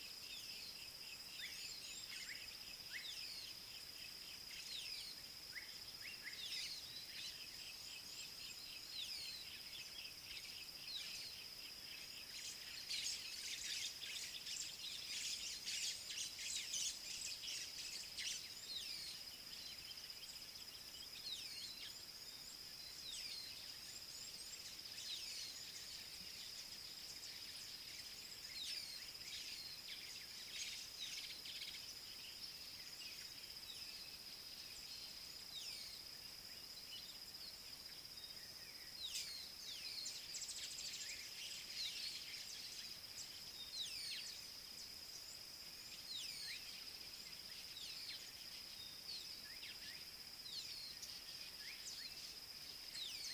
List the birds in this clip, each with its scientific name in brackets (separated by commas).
White-browed Sparrow-Weaver (Plocepasser mahali), Red-cheeked Cordonbleu (Uraeginthus bengalus), Rufous Chatterer (Argya rubiginosa)